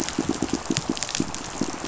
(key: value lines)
label: biophony, pulse
recorder: SoundTrap 500